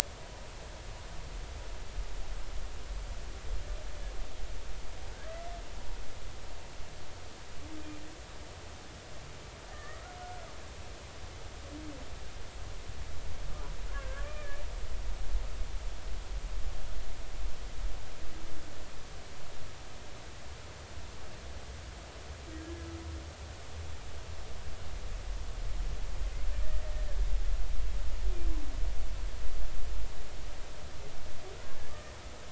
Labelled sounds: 9.7	10.0	humpback whale, 1.1 to 2.0 kHz
13.9	14.6	humpback whale, 1.0 to 2.5 kHz

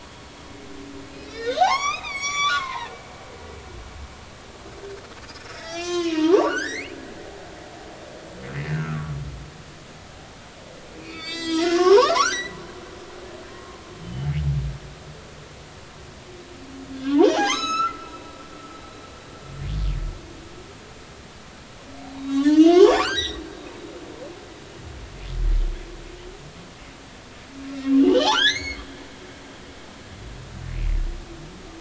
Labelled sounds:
1.1	2.9	humpback whale, 0.80 to 8.0 kHz
5.2	6.9	humpback whale, 0.80 to 7.8 kHz
8.7	9.2	humpback whale, 1.1 to 1.7 kHz
11.0	12.6	humpback whale, 0.80 to 8.0 kHz
13.5	14.3	humpback whale, 1.0 to 3.1 kHz
17.1	18.1	humpback whale, 0.80 to 8.0 kHz
22.2	23.4	humpback whale, 0.80 to 8.0 kHz
27.6	28.8	humpback whale, 1.3 to 6.9 kHz

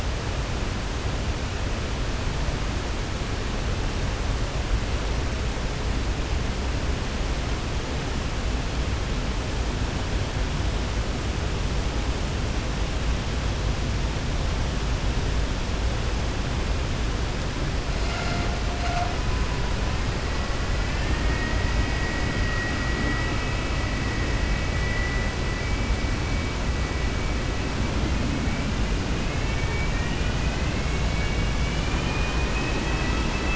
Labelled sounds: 20.8	21.5	vessel noise, 0.93 to 3.1 kHz
22.2	23.4	vessel noise, 1.2 to 2.9 kHz
31.0	32.7	vessel noise, 1.7 to 3.5 kHz

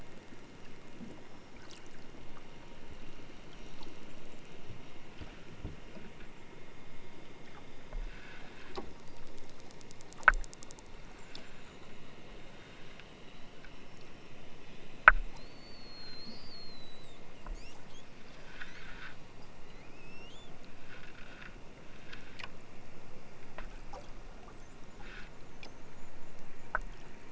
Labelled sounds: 17.4	18.1	killer whale, southern Alaska resident, 1.9 to 8.0 kHz
18.5	18.9	killer whale, southern Alaska resident, 2.8 to 8.0 kHz
19.8	20.5	killer whale, southern Alaska resident, 2.1 to 8.0 kHz

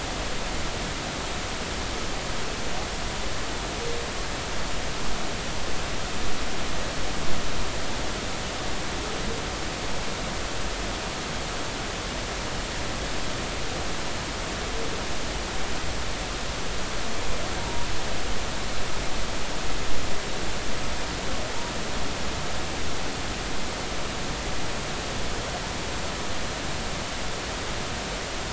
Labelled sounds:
17.6	17.9	humpback whale, 0.86 to 0.99 kHz

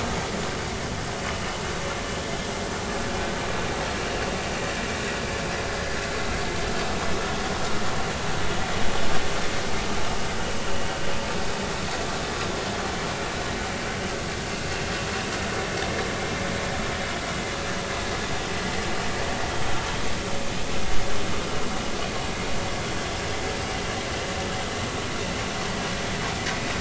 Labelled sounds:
4.0	4.2	vessel noise, 2.6 to 2.9 kHz
16.2	16.4	vessel noise, 2.2 to 2.4 kHz

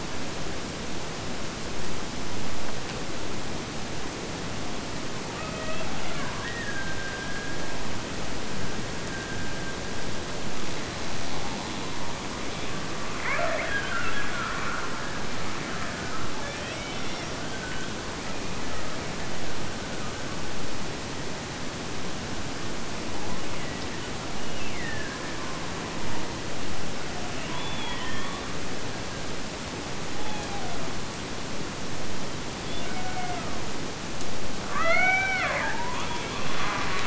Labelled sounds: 5.3	10.6	killer whale, Bigg's (transient), Gulf of Alaska transient, 0.26 to 2.8 kHz
13.2	15.1	killer whale, Bigg's (transient), Gulf of Alaska transient, 0.37 to 2.5 kHz
23.4	24.1	killer whale, Bigg's (transient), Gulf of Alaska transient, 1.3 to 2.9 kHz
24.4	25.3	killer whale, Bigg's (transient), Gulf of Alaska transient, 1.4 to 3.0 kHz
30.2	30.9	killer whale, Bigg's (transient), Gulf of Alaska transient, 0.45 to 3.6 kHz
32.6	33.7	killer whale, Bigg's (transient), Gulf of Alaska transient, 0.53 to 3.6 kHz
34.7	37.0	killer whale, Bigg's (transient), Gulf of Alaska transient, 0.33 to 4.7 kHz

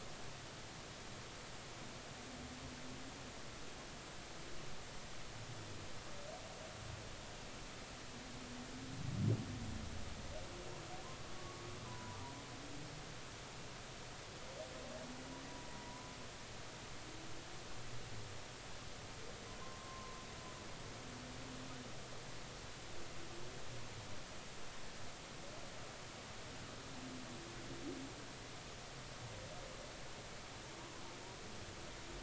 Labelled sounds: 11.4	12.2	humpback whale, 0.93 to 1.2 kHz
19.6	20.2	humpback whale, 0.99 to 1.1 kHz

